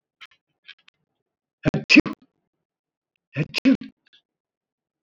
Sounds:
Sneeze